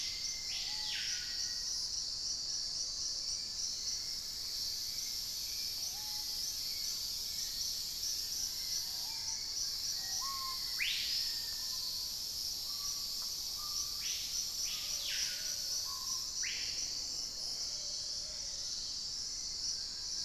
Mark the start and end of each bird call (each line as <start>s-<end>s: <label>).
0.0s-1.5s: Screaming Piha (Lipaugus vociferans)
0.0s-2.0s: Cinereous Mourner (Laniocera hypopyrra)
0.0s-10.3s: Hauxwell's Thrush (Turdus hauxwelli)
2.3s-9.1s: Fasciated Antshrike (Cymbilaimus lineatus)
5.8s-17.2s: Screaming Piha (Lipaugus vociferans)
8.2s-10.6s: Wing-barred Piprites (Piprites chloris)
9.9s-11.8s: Black-faced Antthrush (Formicarius analis)
14.7s-20.2s: Plumbeous Pigeon (Patagioenas plumbea)
17.3s-19.5s: Dusky-throated Antshrike (Thamnomanes ardesiacus)
19.5s-20.2s: Wing-barred Piprites (Piprites chloris)